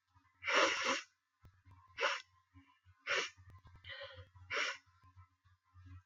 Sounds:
Sniff